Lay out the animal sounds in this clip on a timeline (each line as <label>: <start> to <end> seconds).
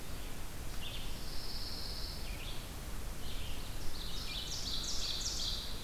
Red-eyed Vireo (Vireo olivaceus): 0.0 to 5.8 seconds
Pine Warbler (Setophaga pinus): 0.7 to 2.7 seconds
Ovenbird (Seiurus aurocapilla): 3.5 to 5.8 seconds